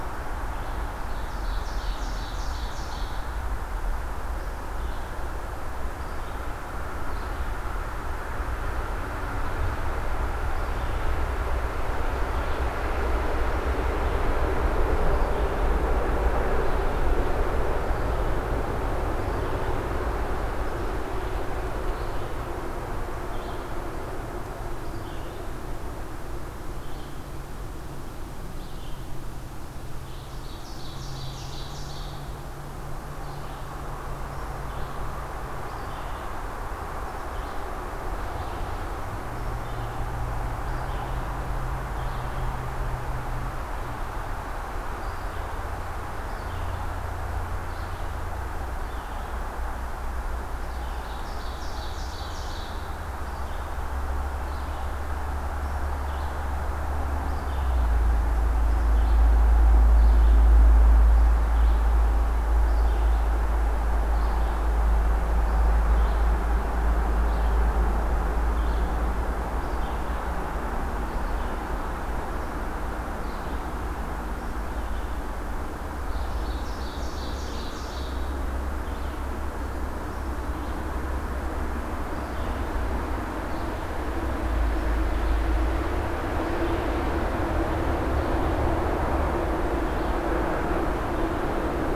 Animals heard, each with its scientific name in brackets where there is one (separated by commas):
Ovenbird (Seiurus aurocapilla), Red-eyed Vireo (Vireo olivaceus)